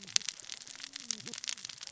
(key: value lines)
label: biophony, cascading saw
recorder: SoundTrap 600 or HydroMoth